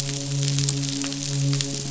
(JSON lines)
{"label": "biophony, midshipman", "recorder": "SoundTrap 500"}